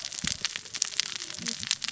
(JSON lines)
{"label": "biophony, cascading saw", "recorder": "SoundTrap 600 or HydroMoth"}